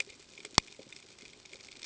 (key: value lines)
label: ambient
recorder: HydroMoth